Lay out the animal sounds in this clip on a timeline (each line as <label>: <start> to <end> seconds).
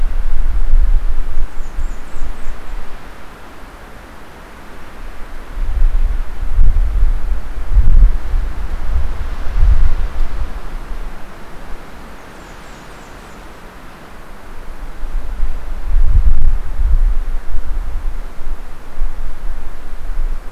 Blackburnian Warbler (Setophaga fusca): 1.3 to 3.1 seconds
Blackburnian Warbler (Setophaga fusca): 12.0 to 13.6 seconds